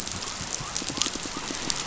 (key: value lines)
label: biophony
recorder: SoundTrap 500